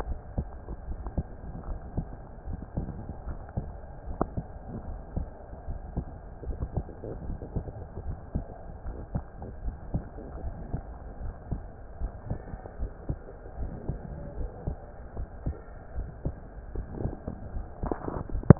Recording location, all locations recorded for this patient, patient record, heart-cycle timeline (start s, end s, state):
pulmonary valve (PV)
aortic valve (AV)+pulmonary valve (PV)+tricuspid valve (TV)+mitral valve (MV)
#Age: Adolescent
#Sex: Male
#Height: nan
#Weight: nan
#Pregnancy status: False
#Murmur: Absent
#Murmur locations: nan
#Most audible location: nan
#Systolic murmur timing: nan
#Systolic murmur shape: nan
#Systolic murmur grading: nan
#Systolic murmur pitch: nan
#Systolic murmur quality: nan
#Diastolic murmur timing: nan
#Diastolic murmur shape: nan
#Diastolic murmur grading: nan
#Diastolic murmur pitch: nan
#Diastolic murmur quality: nan
#Outcome: Abnormal
#Campaign: 2015 screening campaign
0.00	1.66	unannotated
1.66	1.80	S1
1.80	1.95	systole
1.95	2.08	S2
2.08	2.45	diastole
2.45	2.62	S1
2.62	2.74	systole
2.74	2.90	S2
2.90	3.23	diastole
3.23	3.40	S1
3.40	3.54	systole
3.54	3.70	S2
3.70	4.03	diastole
4.03	4.18	S1
4.18	4.33	systole
4.33	4.46	S2
4.46	4.86	diastole
4.86	5.00	S1
5.00	5.14	systole
5.14	5.28	S2
5.28	5.65	diastole
5.65	5.80	S1
5.80	5.94	systole
5.94	6.06	S2
6.06	6.45	diastole
6.45	6.58	S1
6.58	6.72	systole
6.72	6.86	S2
6.86	7.22	diastole
7.22	7.38	S1
7.38	7.54	systole
7.54	7.68	S2
7.68	8.04	diastole
8.04	8.18	S1
8.18	8.32	systole
8.32	8.44	S2
8.44	8.83	diastole
8.83	8.98	S1
8.98	9.12	systole
9.12	9.24	S2
9.24	9.62	diastole
9.62	9.74	S1
9.74	9.90	systole
9.90	10.04	S2
10.04	10.41	diastole
10.41	10.56	S1
10.56	10.70	systole
10.70	10.84	S2
10.84	11.20	diastole
11.20	11.34	S1
11.34	11.50	systole
11.50	11.62	S2
11.62	12.00	diastole
12.00	12.14	S1
12.14	12.28	systole
12.28	12.40	S2
12.40	12.80	diastole
12.80	12.92	S1
12.92	13.08	systole
13.08	13.18	S2
13.18	13.58	diastole
13.58	13.72	S1
13.72	13.86	systole
13.86	14.00	S2
14.00	14.35	diastole
14.35	14.50	S1
14.50	14.63	systole
14.63	14.78	S2
14.78	15.14	diastole
15.14	15.28	S1
15.28	15.42	systole
15.42	15.56	S2
15.56	15.93	diastole
15.93	16.07	S1
16.07	16.23	systole
16.23	16.36	S2
16.36	16.72	diastole
16.72	16.86	S1
16.86	16.98	systole
16.98	17.14	S2
17.14	17.52	diastole
17.52	17.66	S1
17.66	18.59	unannotated